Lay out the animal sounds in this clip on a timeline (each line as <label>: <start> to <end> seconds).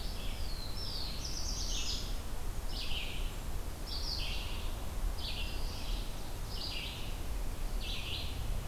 Red-eyed Vireo (Vireo olivaceus): 0.0 to 8.4 seconds
Black-throated Blue Warbler (Setophaga caerulescens): 0.3 to 2.1 seconds